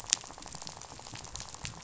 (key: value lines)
label: biophony, rattle
recorder: SoundTrap 500